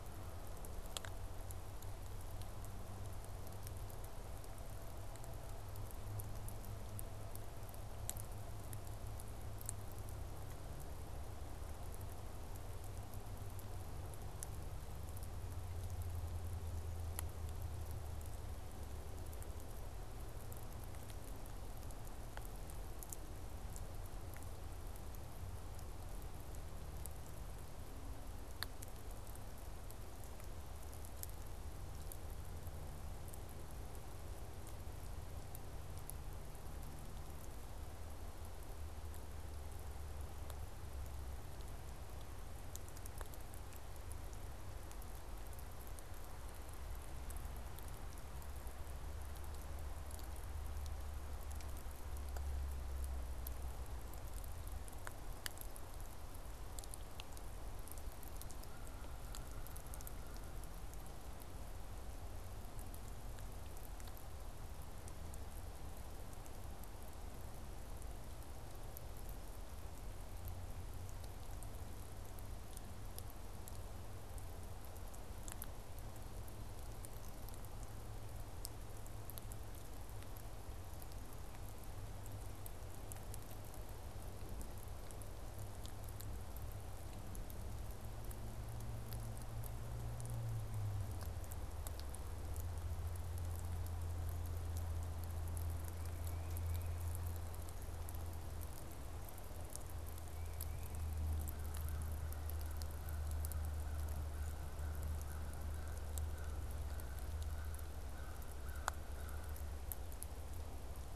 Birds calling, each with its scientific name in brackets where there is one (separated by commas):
Tufted Titmouse (Baeolophus bicolor), American Crow (Corvus brachyrhynchos)